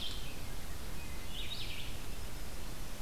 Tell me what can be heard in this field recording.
Red-eyed Vireo, Wood Thrush